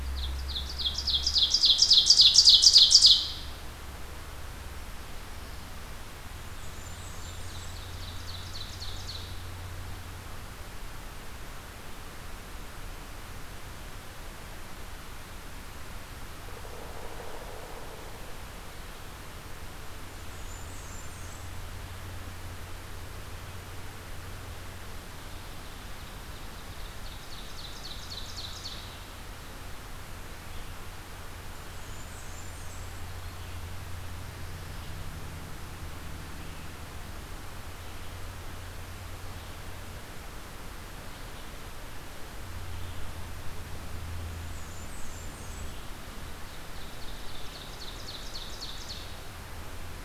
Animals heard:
Blackburnian Warbler (Setophaga fusca)
Red-eyed Vireo (Vireo olivaceus)
Ovenbird (Seiurus aurocapilla)

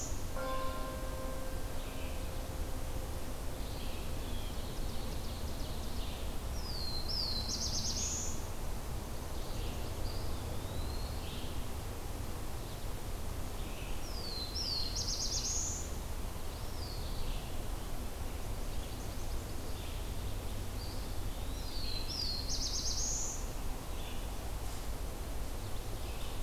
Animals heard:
Eastern Wood-Pewee (Contopus virens)
Ovenbird (Seiurus aurocapilla)
Black-throated Blue Warbler (Setophaga caerulescens)
Red-eyed Vireo (Vireo olivaceus)

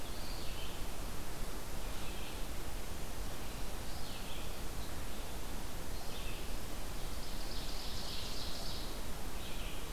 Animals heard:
Ovenbird (Seiurus aurocapilla)
Red-eyed Vireo (Vireo olivaceus)

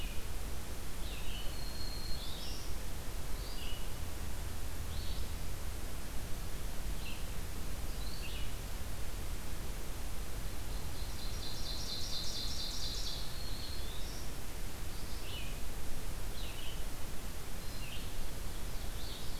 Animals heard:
Ovenbird (Seiurus aurocapilla)
Black-throated Green Warbler (Setophaga virens)
Red-eyed Vireo (Vireo olivaceus)

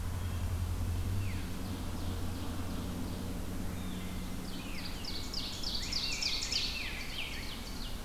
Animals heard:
Ovenbird (Seiurus aurocapilla)
Wood Thrush (Hylocichla mustelina)
Veery (Catharus fuscescens)
Rose-breasted Grosbeak (Pheucticus ludovicianus)

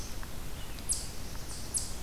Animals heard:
Black-throated Blue Warbler (Setophaga caerulescens)
Eastern Chipmunk (Tamias striatus)

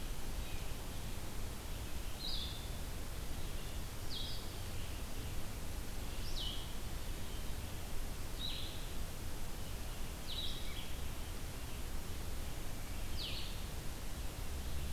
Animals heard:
Blue-headed Vireo (Vireo solitarius)

